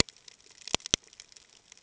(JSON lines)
{"label": "ambient", "recorder": "HydroMoth"}